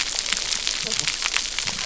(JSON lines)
{"label": "biophony, cascading saw", "recorder": "SoundTrap 300"}